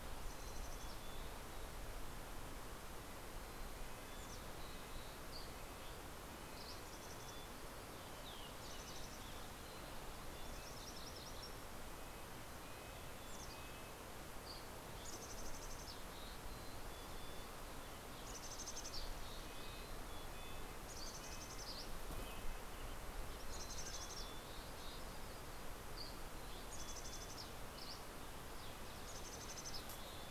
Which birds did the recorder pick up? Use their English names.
Mountain Chickadee, Red-breasted Nuthatch, Mountain Quail, Dusky Flycatcher, MacGillivray's Warbler